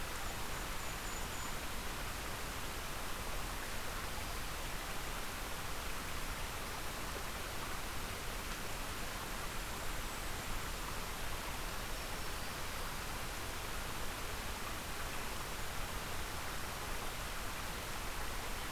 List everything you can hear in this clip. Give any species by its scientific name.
Regulus satrapa, Setophaga virens